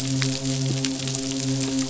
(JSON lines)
{"label": "biophony, midshipman", "recorder": "SoundTrap 500"}